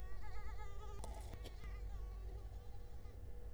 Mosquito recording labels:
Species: Culex quinquefasciatus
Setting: cup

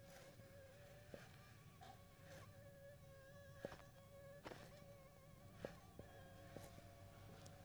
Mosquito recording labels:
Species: Anopheles funestus s.s.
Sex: female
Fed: unfed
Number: one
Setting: cup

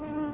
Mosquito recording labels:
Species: Anopheles quadriannulatus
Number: one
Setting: insect culture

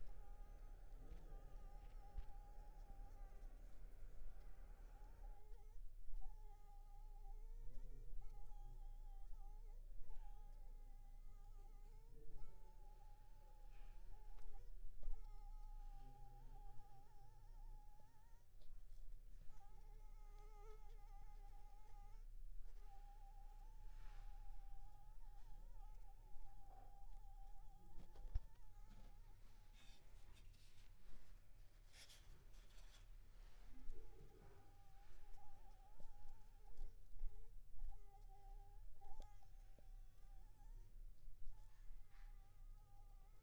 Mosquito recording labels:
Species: Anopheles funestus s.s.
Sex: female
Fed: unfed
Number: one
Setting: cup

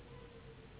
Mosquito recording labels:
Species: Anopheles gambiae s.s.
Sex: female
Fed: unfed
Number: one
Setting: insect culture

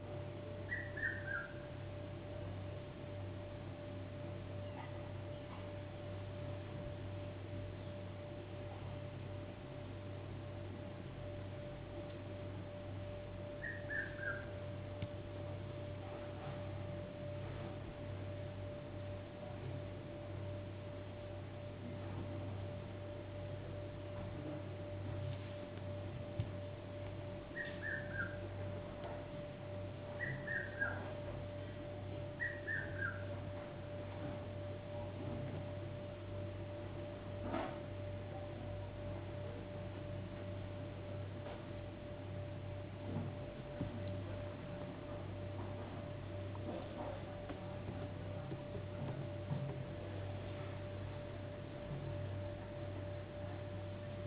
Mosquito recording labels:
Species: no mosquito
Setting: insect culture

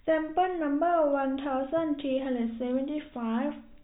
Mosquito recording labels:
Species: no mosquito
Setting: cup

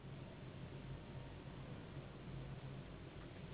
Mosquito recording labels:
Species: Anopheles gambiae s.s.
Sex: female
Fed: unfed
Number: one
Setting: insect culture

